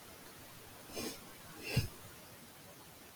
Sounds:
Sneeze